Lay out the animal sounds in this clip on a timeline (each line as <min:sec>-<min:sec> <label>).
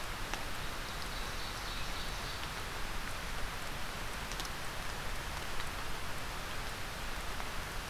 0:00.6-0:02.5 Ovenbird (Seiurus aurocapilla)